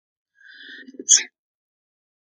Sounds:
Sneeze